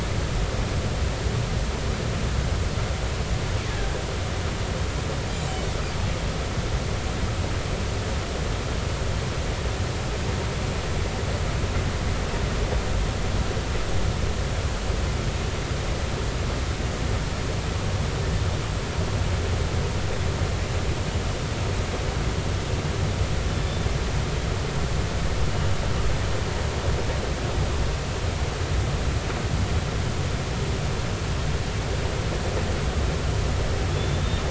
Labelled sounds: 5.2	5.7	killer whale, northern resident, 6.8 to 8.0 kHz
33.9	34.4	killer whale, northern resident, 3.3 to 3.7 kHz

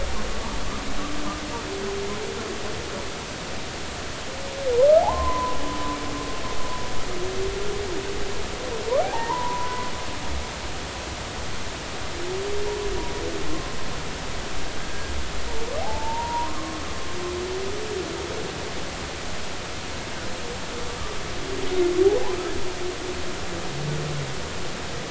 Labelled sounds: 5.0	5.6	humpback whale, 0.80 to 1.1 kHz
9.0	9.9	humpback whale, 0.80 to 1.1 kHz
13.5	13.7	humpback whale, 0.99 to 1.1 kHz
14.8	15.1	humpback whale, 1.5 to 1.8 kHz
15.8	16.8	humpback whale, 0.80 to 1.2 kHz

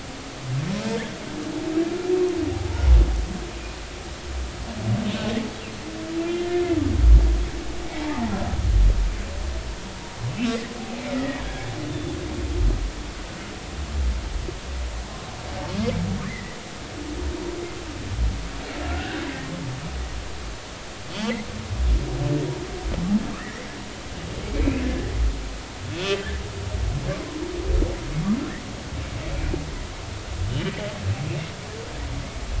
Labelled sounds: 2.5	2.8	humpback whale, 0.80 to 0.99 kHz
7.8	8.3	humpback whale, 0.83 to 2.4 kHz
11.1	12.2	humpback whale, 1.6 to 3.6 kHz
16.3	16.6	humpback whale, 1.7 to 2.1 kHz
18.9	19.3	humpback whale, 1.3 to 2.9 kHz
23.4	23.7	humpback whale, 1.7 to 2.3 kHz
24.5	24.9	humpback whale, 2.2 to 2.7 kHz
25.9	26.2	humpback whale, 2.5 to 2.8 kHz

